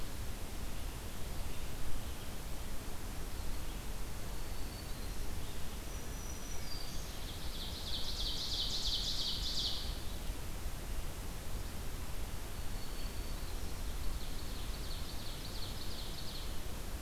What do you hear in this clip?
Black-throated Green Warbler, Ovenbird